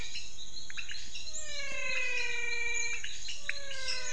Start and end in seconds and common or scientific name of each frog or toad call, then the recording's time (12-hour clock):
0.0	4.1	pointedbelly frog
0.0	4.1	menwig frog
3.7	4.1	lesser tree frog
5:45pm